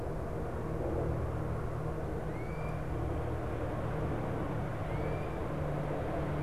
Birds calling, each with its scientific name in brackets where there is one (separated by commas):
Great Crested Flycatcher (Myiarchus crinitus)